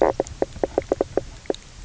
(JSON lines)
{"label": "biophony, knock croak", "recorder": "SoundTrap 300"}